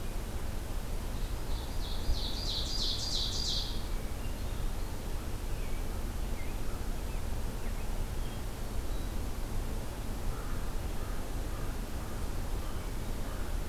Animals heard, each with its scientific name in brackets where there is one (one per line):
American Crow (Corvus brachyrhynchos)
Ovenbird (Seiurus aurocapilla)
Hermit Thrush (Catharus guttatus)
American Robin (Turdus migratorius)